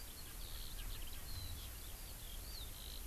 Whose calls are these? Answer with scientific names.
Pternistis erckelii, Alauda arvensis